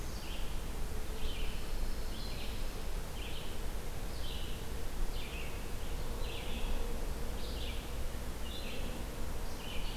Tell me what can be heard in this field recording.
Black-throated Green Warbler, Red-eyed Vireo, Pine Warbler